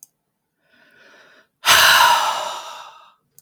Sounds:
Sigh